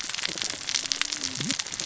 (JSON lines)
{"label": "biophony, cascading saw", "recorder": "SoundTrap 600 or HydroMoth"}